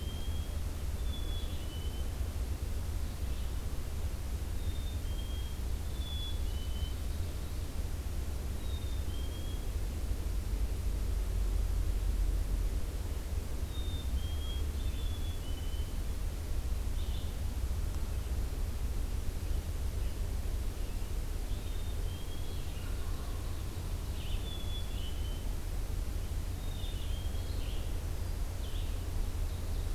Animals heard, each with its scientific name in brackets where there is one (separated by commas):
Red-eyed Vireo (Vireo olivaceus), Ovenbird (Seiurus aurocapilla), Wild Turkey (Meleagris gallopavo), Black-capped Chickadee (Poecile atricapillus)